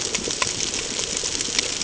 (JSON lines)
{"label": "ambient", "recorder": "HydroMoth"}